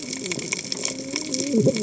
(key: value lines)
label: biophony, cascading saw
recorder: HydroMoth